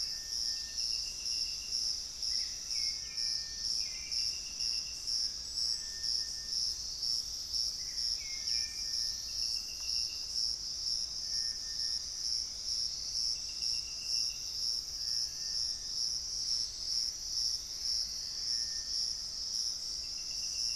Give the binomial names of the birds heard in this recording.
Turdus hauxwelli, Cercomacra cinerascens, Formicarius analis